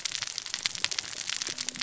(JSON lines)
{"label": "biophony, cascading saw", "recorder": "SoundTrap 600 or HydroMoth"}